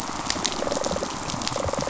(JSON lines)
{"label": "biophony, rattle response", "recorder": "SoundTrap 500"}